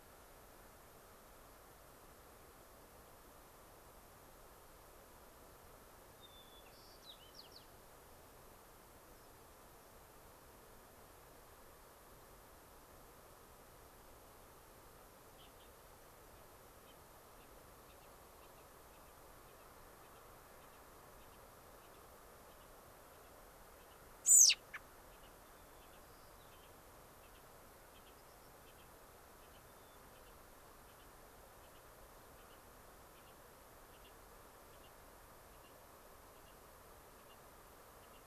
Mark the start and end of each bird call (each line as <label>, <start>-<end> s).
White-crowned Sparrow (Zonotrichia leucophrys), 6.2-7.7 s
unidentified bird, 9.1-9.3 s
Gray-crowned Rosy-Finch (Leucosticte tephrocotis), 15.3-15.7 s
Gray-crowned Rosy-Finch (Leucosticte tephrocotis), 16.8-17.0 s
Gray-crowned Rosy-Finch (Leucosticte tephrocotis), 17.3-17.5 s
American Robin (Turdus migratorius), 24.2-24.9 s
White-crowned Sparrow (Zonotrichia leucophrys), 25.5-26.6 s
unidentified bird, 28.1-28.6 s